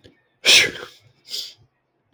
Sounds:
Sneeze